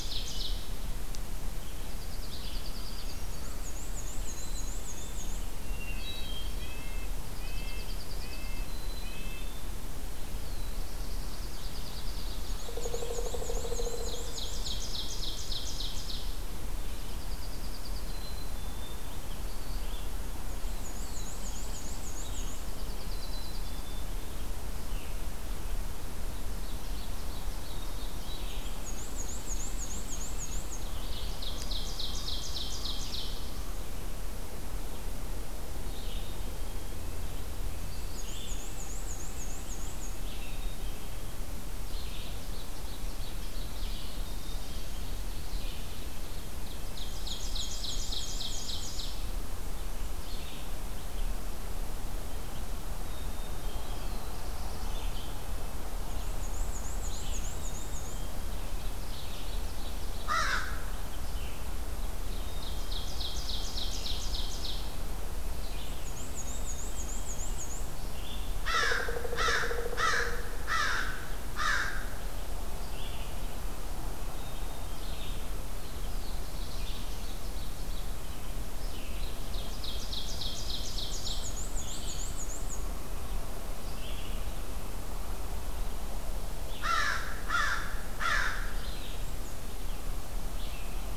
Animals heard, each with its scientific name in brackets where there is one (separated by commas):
Black-and-white Warbler (Mniotilta varia), Red-eyed Vireo (Vireo olivaceus), Pileated Woodpecker (Dryocopus pileatus), American Crow (Corvus brachyrhynchos), Black-capped Chickadee (Poecile atricapillus), Pine Warbler (Setophaga pinus), Ovenbird (Seiurus aurocapilla), Hermit Thrush (Catharus guttatus), Black-throated Blue Warbler (Setophaga caerulescens), Red-breasted Nuthatch (Sitta canadensis)